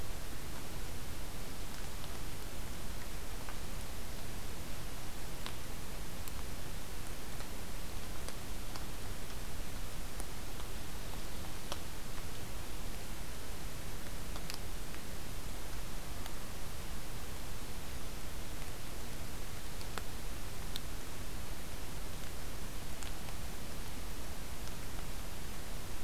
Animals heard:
forest ambience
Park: Acadia National Park